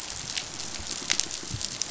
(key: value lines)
label: biophony, pulse
recorder: SoundTrap 500